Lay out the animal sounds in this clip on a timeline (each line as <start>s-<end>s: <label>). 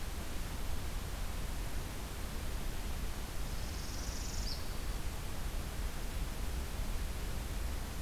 3.4s-4.9s: Northern Parula (Setophaga americana)